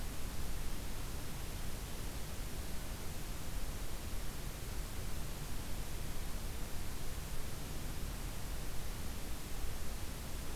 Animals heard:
forest ambience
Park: Acadia National Park